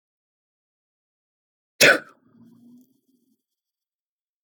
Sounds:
Sneeze